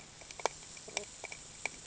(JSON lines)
{"label": "ambient", "recorder": "HydroMoth"}